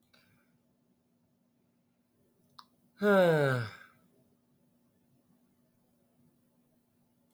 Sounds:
Sigh